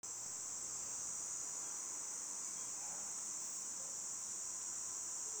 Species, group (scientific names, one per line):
Tibicina haematodes
Cicadidae